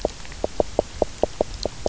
{"label": "biophony, knock croak", "recorder": "SoundTrap 300"}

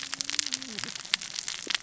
{"label": "biophony, cascading saw", "recorder": "SoundTrap 600 or HydroMoth"}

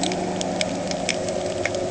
{"label": "anthrophony, boat engine", "recorder": "HydroMoth"}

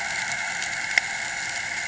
{"label": "anthrophony, boat engine", "recorder": "HydroMoth"}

